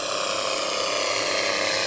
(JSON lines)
{"label": "anthrophony, boat engine", "recorder": "SoundTrap 300"}